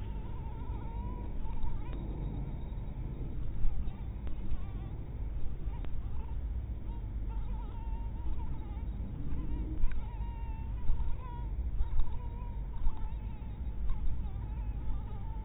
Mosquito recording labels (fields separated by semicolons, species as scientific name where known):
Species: mosquito; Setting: cup